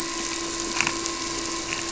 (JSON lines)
{"label": "anthrophony, boat engine", "recorder": "SoundTrap 300"}